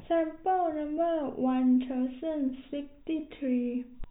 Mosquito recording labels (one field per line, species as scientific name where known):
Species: no mosquito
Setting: cup